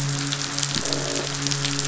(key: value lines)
label: biophony, croak
recorder: SoundTrap 500

label: biophony, midshipman
recorder: SoundTrap 500